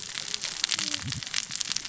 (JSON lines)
{"label": "biophony, cascading saw", "recorder": "SoundTrap 600 or HydroMoth"}